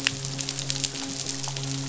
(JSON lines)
{"label": "biophony, midshipman", "recorder": "SoundTrap 500"}